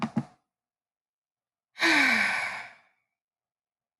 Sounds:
Sigh